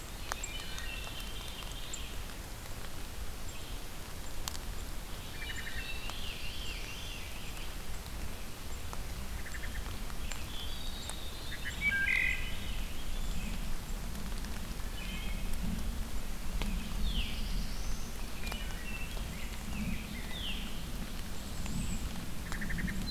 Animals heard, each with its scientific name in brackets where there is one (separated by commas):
Red-eyed Vireo (Vireo olivaceus), Rose-breasted Grosbeak (Pheucticus ludovicianus), Wood Thrush (Hylocichla mustelina), Bay-breasted Warbler (Setophaga castanea), Veery (Catharus fuscescens), Black-throated Blue Warbler (Setophaga caerulescens), unknown mammal